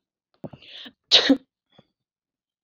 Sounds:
Sneeze